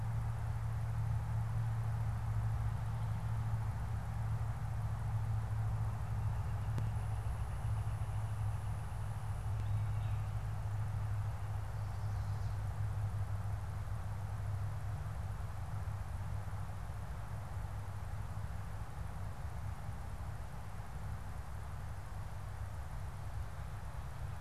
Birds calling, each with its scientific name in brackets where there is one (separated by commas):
Northern Flicker (Colaptes auratus), Chestnut-sided Warbler (Setophaga pensylvanica)